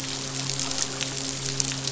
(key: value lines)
label: biophony, midshipman
recorder: SoundTrap 500